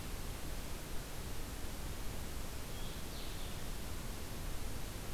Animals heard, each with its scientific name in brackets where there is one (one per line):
Blue-headed Vireo (Vireo solitarius)